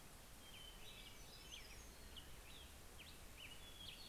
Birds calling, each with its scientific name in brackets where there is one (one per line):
Hermit Warbler (Setophaga occidentalis)
Black-headed Grosbeak (Pheucticus melanocephalus)
Hermit Thrush (Catharus guttatus)